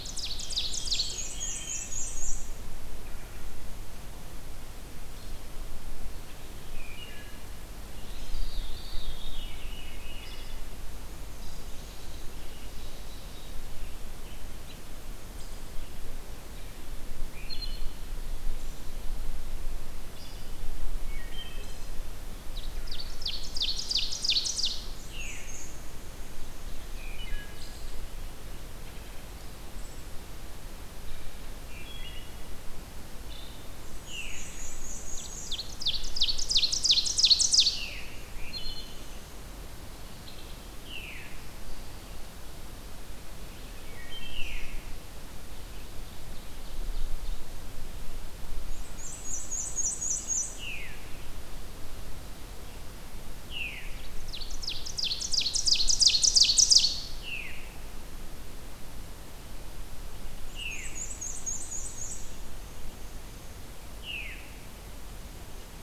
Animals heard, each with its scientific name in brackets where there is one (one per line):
Ovenbird (Seiurus aurocapilla)
Black-and-white Warbler (Mniotilta varia)
Veery (Catharus fuscescens)
Wood Thrush (Hylocichla mustelina)
Red-eyed Vireo (Vireo olivaceus)